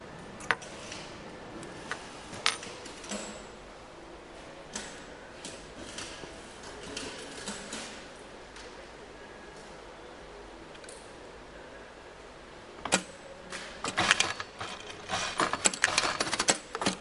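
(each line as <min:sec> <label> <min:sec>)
0:00.0 Sounds of a weaving workshop. 0:17.0
0:00.4 The weaving machine is operating. 0:03.2
0:04.7 A weaving machine is operating. 0:10.9
0:08.0 Indistinct music playing in the background. 0:17.0
0:12.8 A loud weaving machine sound. 0:17.0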